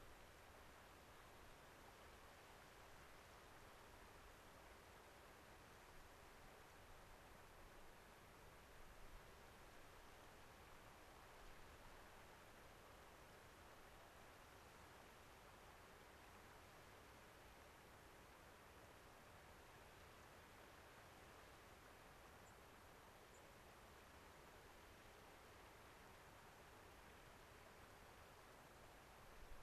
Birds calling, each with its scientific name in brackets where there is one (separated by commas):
White-crowned Sparrow (Zonotrichia leucophrys)